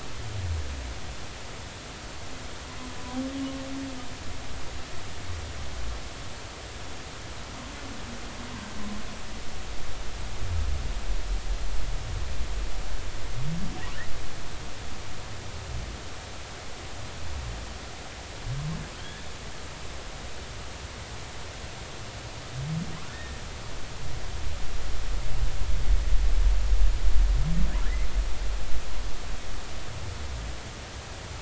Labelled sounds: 19.0	19.2	humpback whale, 3.1 to 3.5 kHz
23.1	23.4	humpback whale, 1.7 to 1.9 kHz

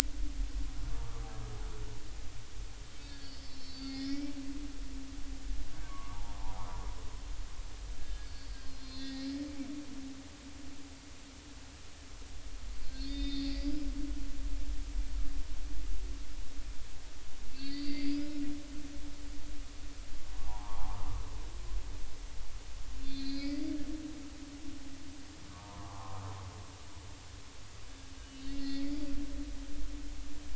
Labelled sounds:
3.0	4.4	humpback whale, 1.6 to 5.4 kHz
5.8	6.8	humpback whale, 0.80 to 1.3 kHz
8.0	9.3	humpback whale, 1.6 to 5.2 kHz
12.8	13.9	humpback whale, 1.9 to 5.2 kHz
17.5	18.2	humpback whale, 2.0 to 4.9 kHz
20.3	21.0	humpback whale, 0.80 to 1.3 kHz
23.0	23.6	humpback whale, 2.1 to 5.0 kHz
25.5	26.2	humpback whale, 0.80 to 1.3 kHz
28.2	28.9	humpback whale, 1.8 to 5.3 kHz

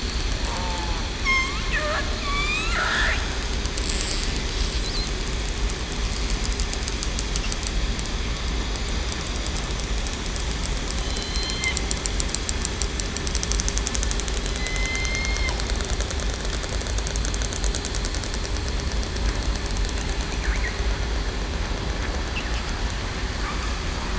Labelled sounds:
0.4	1.6	killer whale, southern resident, 0.80 to 1.4 kHz
2.2	2.8	killer whale, southern resident, 1.1 to 4.0 kHz
10.9	11.7	killer whale, southern resident, 3.0 to 4.2 kHz
14.6	15.5	killer whale, southern resident, 2.0 to 4.3 kHz

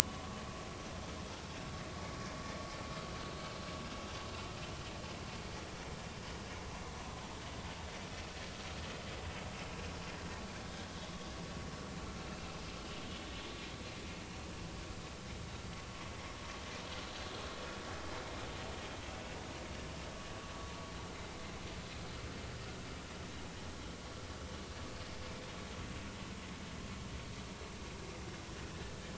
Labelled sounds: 0.0	0.3	vessel noise, 2.8 to 3.0 kHz
12.3	12.5	vessel noise, 2.6 to 2.8 kHz

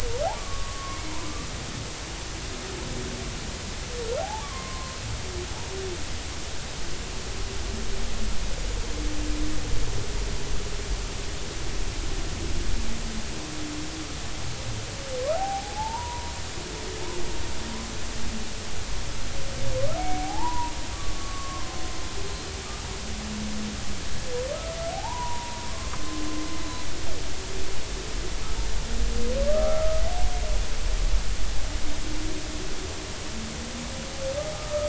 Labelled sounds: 4.2	5.0	humpback whale, 0.80 to 1.2 kHz
15.3	16.3	humpback whale, 0.80 to 1.0 kHz
20.0	21.8	humpback whale, 0.80 to 1.2 kHz
24.9	25.9	humpback whale, 0.80 to 1.2 kHz
29.5	30.0	humpback whale, 1.1 to 1.4 kHz
34.5	34.8	humpback whale, 1.2 to 1.3 kHz

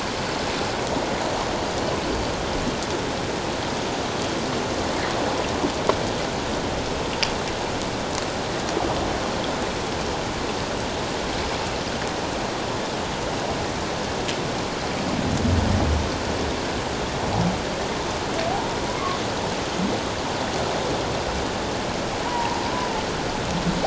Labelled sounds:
2.0	2.3	humpback whale, 4.5 to 4.7 kHz
18.5	18.8	humpback whale, 0.78 to 1.0 kHz
22.3	22.6	humpback whale, 0.81 to 1.1 kHz

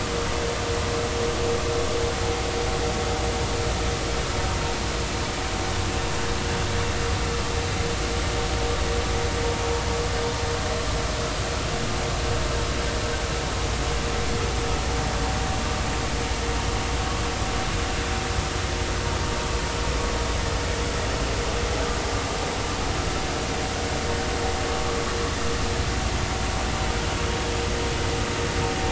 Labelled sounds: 24.7	25.0	vessel noise, 1.1 to 1.3 kHz

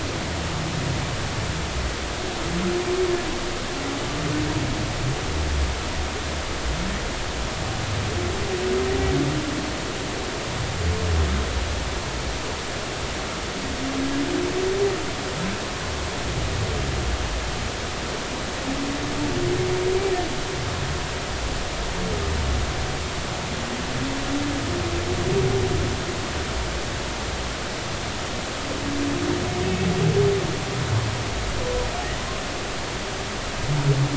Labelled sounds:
29.6	29.9	humpback whale, 2.5 to 2.7 kHz

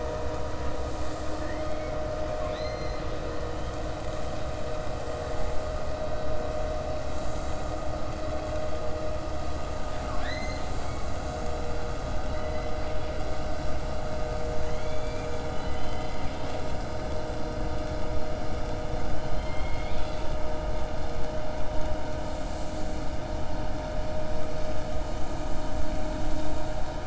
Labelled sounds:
2.3	3.1	killer whale, 1.1 to 4.2 kHz

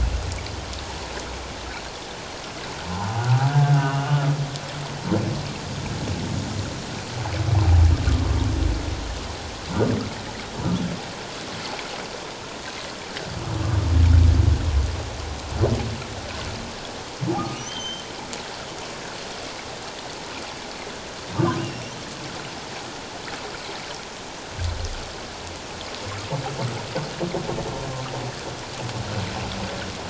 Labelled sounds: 2.9	4.2	humpback whale, 0.78 to 3.0 kHz
17.3	18.0	humpback whale, 1.1 to 6.4 kHz
21.3	21.9	humpback whale, 0.97 to 5.7 kHz

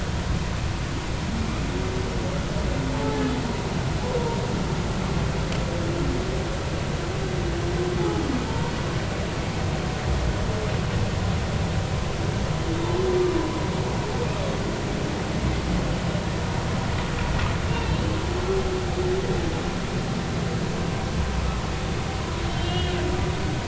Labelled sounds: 2.9	3.2	humpback whale, 0.80 to 0.93 kHz
8.5	8.7	humpback whale, 0.86 to 1.1 kHz
17.7	18.0	humpback whale, 2.6 to 2.8 kHz
22.5	23.0	humpback whale, 2.8 to 4.0 kHz

